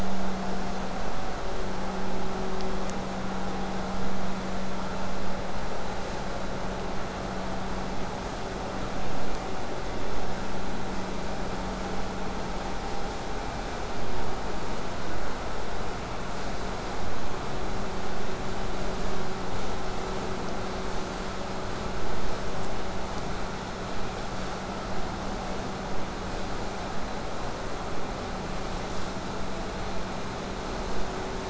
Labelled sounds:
23.9	24.9	vessel noise, 0.09 to 4.2 kHz

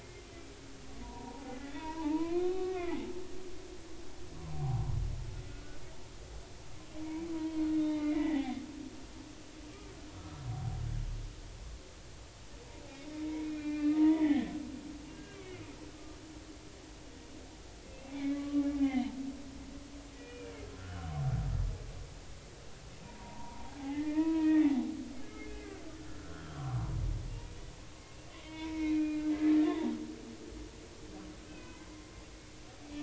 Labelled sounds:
0.0	3.1	humpback whale, 0.80 to 3.8 kHz
4.5	4.9	humpback whale, 0.80 to 1.2 kHz
5.4	5.8	humpback whale, 1.4 to 1.6 kHz
7.0	8.5	humpback whale, 0.80 to 3.8 kHz
10.2	10.5	humpback whale, 1.2 to 1.4 kHz
13.2	14.5	humpback whale, 0.90 to 2.5 kHz
15.1	15.6	humpback whale, 1.6 to 2.4 kHz
17.8	19.1	humpback whale, 0.80 to 3.2 kHz
20.2	21.1	humpback whale, 1.2 to 2.5 kHz
23.0	24.6	humpback whale, 0.80 to 2.6 kHz
25.3	25.8	humpback whale, 1.4 to 2.2 kHz
26.1	26.8	humpback whale, 0.93 to 1.6 kHz
28.4	29.9	humpback whale, 0.80 to 2.6 kHz
31.5	31.8	humpback whale, 1.5 to 2.7 kHz

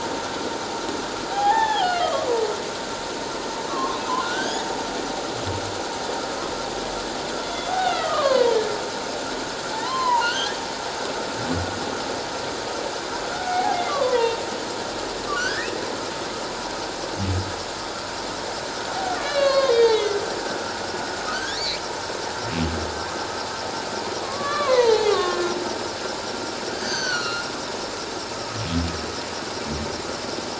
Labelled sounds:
1.3	2.3	humpback whale, 0.78 to 3.7 kHz
3.7	4.6	humpback whale, 0.97 to 3.6 kHz
7.4	8.4	humpback whale, 0.78 to 3.6 kHz
9.7	10.5	humpback whale, 0.78 to 4.2 kHz
13.3	14.4	humpback whale, 0.78 to 2.3 kHz
15.3	15.7	humpback whale, 1.3 to 2.0 kHz
19.2	20.2	humpback whale, 1.0 to 4.8 kHz
21.3	21.8	humpback whale, 1.4 to 4.7 kHz
24.2	25.6	humpback whale, 0.78 to 4.2 kHz
26.7	27.5	humpback whale, 1.2 to 6.4 kHz

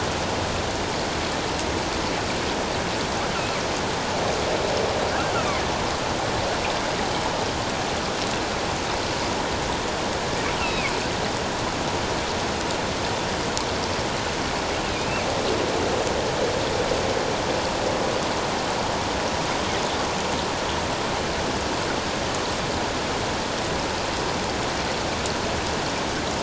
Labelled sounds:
5.4	5.6	killer whale, northern resident, 2.0 to 2.7 kHz
10.6	10.9	killer whale, northern resident, 2.1 to 3.1 kHz
14.9	15.3	killer whale, northern resident, 2.2 to 2.8 kHz

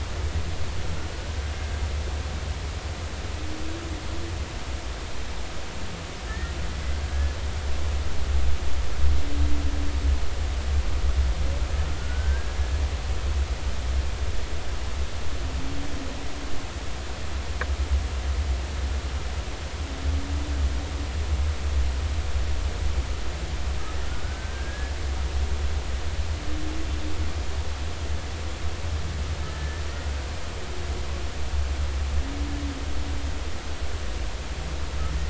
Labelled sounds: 6.3	6.6	humpback whale, 1.7 to 2.0 kHz
12.0	12.6	humpback whale, 1.4 to 1.7 kHz
24.2	24.9	humpback whale, 1.4 to 1.8 kHz
29.5	29.8	humpback whale, 1.7 to 1.8 kHz

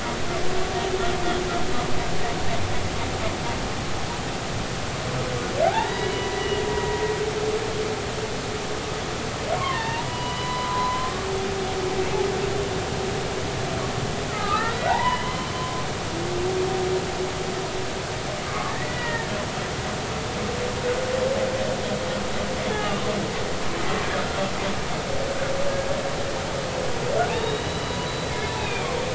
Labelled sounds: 5.6	6.5	humpback whale, 0.80 to 4.0 kHz
9.6	11.1	humpback whale, 0.86 to 4.0 kHz
14.3	15.8	humpback whale, 0.80 to 3.1 kHz
18.5	19.3	humpback whale, 0.86 to 2.0 kHz
22.7	23.1	humpback whale, 0.80 to 1.3 kHz
27.3	28.3	humpback whale, 0.93 to 4.0 kHz
28.6	28.9	humpback whale, 2.3 to 3.8 kHz

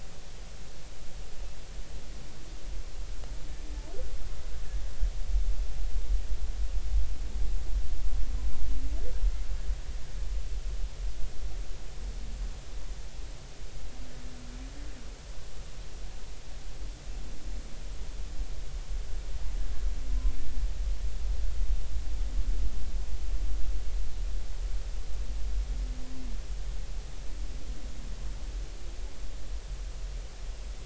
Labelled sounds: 20.1	20.3	humpback whale, 0.96 to 1.1 kHz

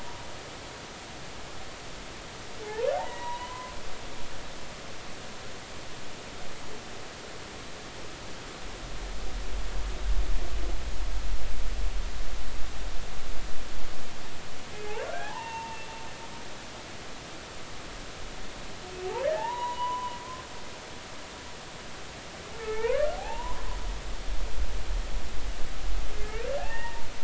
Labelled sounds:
2.6	3.7	humpback whale, 0.80 to 3.9 kHz
15.2	15.8	humpback whale, 0.80 to 2.9 kHz
19.2	20.2	humpback whale, 0.80 to 3.1 kHz
22.5	23.7	humpback whale, 0.80 to 2.6 kHz
26.1	27.1	humpback whale, 0.80 to 2.8 kHz

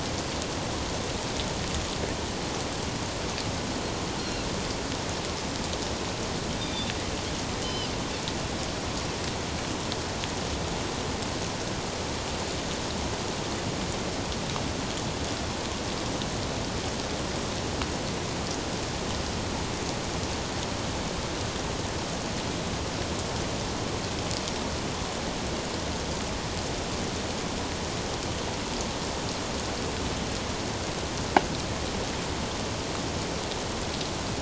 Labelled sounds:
4.2	4.5	Pacific white-sided dolphin, 4.0 to 4.4 kHz
6.6	6.9	Pacific white-sided dolphin, 3.4 to 3.7 kHz
7.6	7.9	Pacific white-sided dolphin, 2.9 to 3.1 kHz

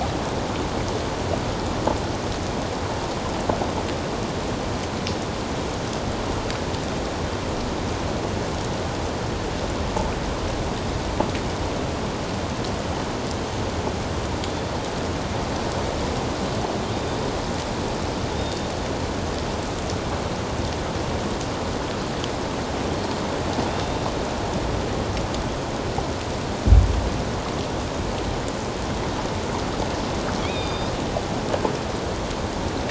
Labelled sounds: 16.9	17.2	killer whale, 3.5 to 3.8 kHz
18.3	18.6	killer whale, 3.5 to 3.8 kHz
23.7	24.0	killer whale, 3.6 to 3.7 kHz
30.4	30.9	killer whale, 2.2 to 5.1 kHz

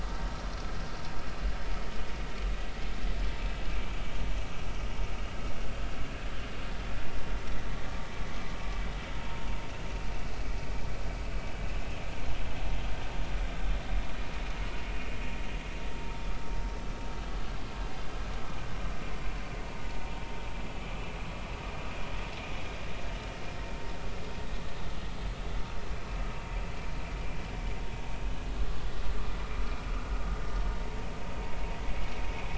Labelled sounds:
3.7	3.9	vessel noise, 2.3 to 2.4 kHz

